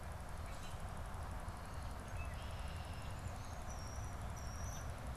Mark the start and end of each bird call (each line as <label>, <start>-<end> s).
Common Grackle (Quiscalus quiscula), 0.3-1.0 s
Red-winged Blackbird (Agelaius phoeniceus), 1.7-3.2 s
European Starling (Sturnus vulgaris), 3.2-5.1 s